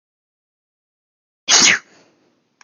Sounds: Sneeze